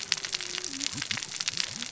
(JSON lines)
{"label": "biophony, cascading saw", "recorder": "SoundTrap 600 or HydroMoth"}